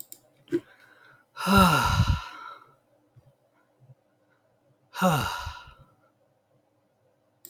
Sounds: Sigh